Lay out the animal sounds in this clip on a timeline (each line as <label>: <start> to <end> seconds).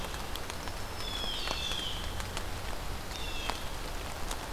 Blue Jay (Cyanocitta cristata): 0.0 to 3.6 seconds
Black-throated Green Warbler (Setophaga virens): 0.3 to 1.9 seconds